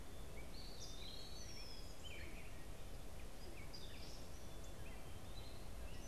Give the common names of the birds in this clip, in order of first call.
Gray Catbird, Red-winged Blackbird, Eastern Wood-Pewee